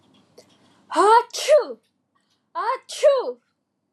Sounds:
Sneeze